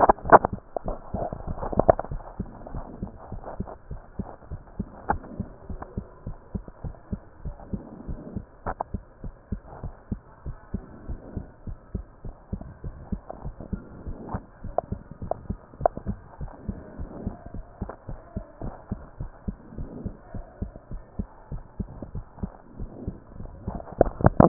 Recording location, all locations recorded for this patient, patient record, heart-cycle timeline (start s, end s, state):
mitral valve (MV)
aortic valve (AV)+pulmonary valve (PV)+tricuspid valve (TV)+mitral valve (MV)
#Age: Child
#Sex: Male
#Height: 141.0 cm
#Weight: 35.7 kg
#Pregnancy status: False
#Murmur: Absent
#Murmur locations: nan
#Most audible location: nan
#Systolic murmur timing: nan
#Systolic murmur shape: nan
#Systolic murmur grading: nan
#Systolic murmur pitch: nan
#Systolic murmur quality: nan
#Diastolic murmur timing: nan
#Diastolic murmur shape: nan
#Diastolic murmur grading: nan
#Diastolic murmur pitch: nan
#Diastolic murmur quality: nan
#Outcome: Abnormal
#Campaign: 2015 screening campaign
0.00	3.30	unannotated
3.30	3.44	S1
3.44	3.58	systole
3.58	3.68	S2
3.68	3.90	diastole
3.90	4.02	S1
4.02	4.18	systole
4.18	4.28	S2
4.28	4.50	diastole
4.50	4.62	S1
4.62	4.78	systole
4.78	4.88	S2
4.88	5.08	diastole
5.08	5.22	S1
5.22	5.38	systole
5.38	5.48	S2
5.48	5.68	diastole
5.68	5.82	S1
5.82	5.96	systole
5.96	6.06	S2
6.06	6.26	diastole
6.26	6.36	S1
6.36	6.54	systole
6.54	6.64	S2
6.64	6.84	diastole
6.84	6.96	S1
6.96	7.10	systole
7.10	7.22	S2
7.22	7.44	diastole
7.44	7.56	S1
7.56	7.72	systole
7.72	7.86	S2
7.86	8.06	diastole
8.06	8.18	S1
8.18	8.34	systole
8.34	8.44	S2
8.44	8.66	diastole
8.66	8.76	S1
8.76	8.90	systole
8.90	9.04	S2
9.04	9.24	diastole
9.24	9.32	S1
9.32	9.48	systole
9.48	9.60	S2
9.60	9.82	diastole
9.82	9.94	S1
9.94	10.10	systole
10.10	10.22	S2
10.22	10.46	diastole
10.46	10.56	S1
10.56	10.70	systole
10.70	10.82	S2
10.82	11.06	diastole
11.06	11.20	S1
11.20	11.34	systole
11.34	11.46	S2
11.46	11.66	diastole
11.66	11.76	S1
11.76	11.90	systole
11.90	12.04	S2
12.04	12.22	diastole
12.22	12.34	S1
12.34	12.52	systole
12.52	12.62	S2
12.62	12.84	diastole
12.84	12.96	S1
12.96	13.08	systole
13.08	13.22	S2
13.22	13.44	diastole
13.44	13.54	S1
13.54	13.68	systole
13.68	13.82	S2
13.82	14.04	diastole
14.04	14.16	S1
14.16	14.32	systole
14.32	14.44	S2
14.44	14.63	diastole
14.63	14.74	S1
14.74	14.88	systole
14.88	15.02	S2
15.02	15.20	diastole
15.20	15.32	S1
15.32	15.46	systole
15.46	15.58	S2
15.58	15.80	diastole
15.80	15.92	S1
15.92	16.04	systole
16.04	16.18	S2
16.18	16.38	diastole
16.38	16.52	S1
16.52	16.66	systole
16.66	16.80	S2
16.80	16.98	diastole
16.98	17.10	S1
17.10	17.24	systole
17.24	17.34	S2
17.34	17.52	diastole
17.52	17.64	S1
17.64	17.80	systole
17.80	17.90	S2
17.90	18.07	diastole
18.07	18.18	S1
18.18	18.35	systole
18.35	18.44	S2
18.44	18.62	diastole
18.62	18.74	S1
18.74	18.88	systole
18.88	19.00	S2
19.00	19.19	diastole
19.19	19.32	S1
19.32	19.44	systole
19.44	19.58	S2
19.58	19.78	diastole
19.78	19.90	S1
19.90	20.04	systole
20.04	20.14	S2
20.14	20.34	diastole
20.34	20.44	S1
20.44	20.58	systole
20.58	20.72	S2
20.72	20.90	diastole
20.90	21.02	S1
21.02	21.17	systole
21.17	21.27	S2
21.27	21.49	diastole
21.49	21.62	S1
21.62	21.78	systole
21.78	21.89	S2
21.89	22.14	diastole
22.14	22.24	S1
22.24	22.42	systole
22.42	22.54	S2
22.54	22.78	diastole
22.78	22.90	S1
22.90	23.06	systole
23.06	23.18	S2
23.18	23.35	diastole
23.35	24.48	unannotated